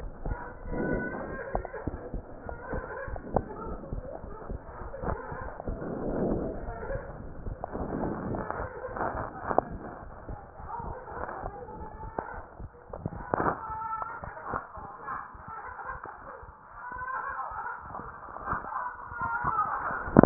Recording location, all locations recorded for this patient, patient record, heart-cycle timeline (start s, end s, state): pulmonary valve (PV)
aortic valve (AV)+pulmonary valve (PV)+tricuspid valve (TV)+mitral valve (MV)
#Age: Child
#Sex: Male
#Height: 131.0 cm
#Weight: 34.2 kg
#Pregnancy status: False
#Murmur: Unknown
#Murmur locations: nan
#Most audible location: nan
#Systolic murmur timing: nan
#Systolic murmur shape: nan
#Systolic murmur grading: nan
#Systolic murmur pitch: nan
#Systolic murmur quality: nan
#Diastolic murmur timing: nan
#Diastolic murmur shape: nan
#Diastolic murmur grading: nan
#Diastolic murmur pitch: nan
#Diastolic murmur quality: nan
#Outcome: Normal
#Campaign: 2015 screening campaign
0.00	9.69	unannotated
9.69	9.72	systole
9.72	9.82	S2
9.82	10.06	diastole
10.06	10.14	S1
10.14	10.28	systole
10.28	10.38	S2
10.38	10.60	diastole
10.60	10.70	S1
10.70	10.84	systole
10.84	10.98	S2
10.98	11.18	diastole
11.18	11.28	S1
11.28	11.42	systole
11.42	11.54	S2
11.54	11.78	diastole
11.78	11.88	S1
11.88	12.02	systole
12.02	12.12	S2
12.12	12.38	diastole
12.38	12.46	S1
12.46	12.59	systole
12.59	12.70	S2
12.70	12.91	diastole
12.91	13.04	S1
13.04	13.13	systole
13.13	13.26	S2
13.26	13.46	diastole
13.46	13.58	S1
13.58	13.68	systole
13.68	13.76	S2
13.76	14.02	diastole
14.02	14.10	S1
14.10	14.22	systole
14.22	14.28	S2
14.28	14.52	diastole
14.52	14.62	S1
14.62	14.76	systole
14.76	14.82	S2
14.82	15.10	diastole
15.10	15.20	S1
15.20	15.34	systole
15.34	15.44	S2
15.44	15.46	diastole
15.46	20.26	unannotated